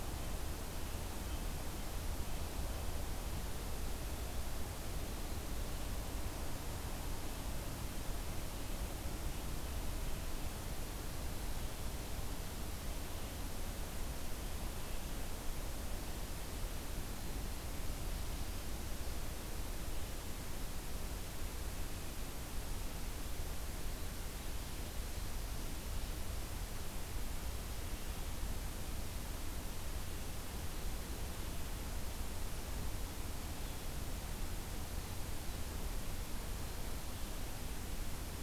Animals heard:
forest ambience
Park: Acadia National Park